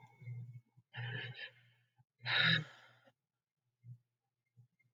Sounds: Sigh